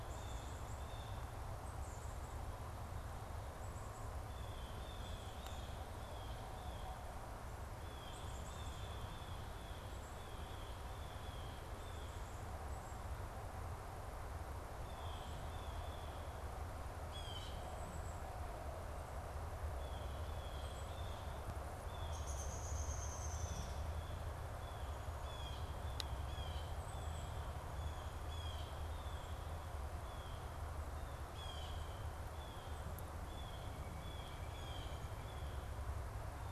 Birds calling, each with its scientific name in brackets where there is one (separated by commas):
Blue Jay (Cyanocitta cristata), Pileated Woodpecker (Dryocopus pileatus), Downy Woodpecker (Dryobates pubescens), Black-capped Chickadee (Poecile atricapillus)